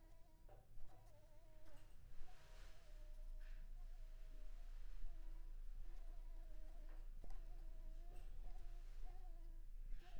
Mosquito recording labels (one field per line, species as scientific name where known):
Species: Anopheles coustani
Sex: female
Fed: unfed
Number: one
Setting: cup